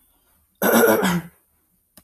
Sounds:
Throat clearing